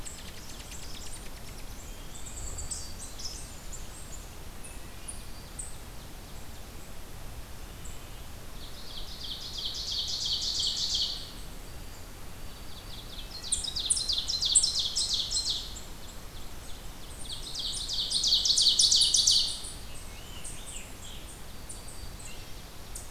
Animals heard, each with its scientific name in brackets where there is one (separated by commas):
Black-throated Green Warbler (Setophaga virens), Ovenbird (Seiurus aurocapilla), unknown mammal, Scarlet Tanager (Piranga olivacea), Eastern Chipmunk (Tamias striatus)